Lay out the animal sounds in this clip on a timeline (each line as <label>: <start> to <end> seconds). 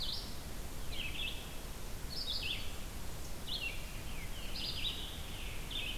Red-eyed Vireo (Vireo olivaceus): 0.0 to 6.0 seconds
Scarlet Tanager (Piranga olivacea): 4.0 to 5.9 seconds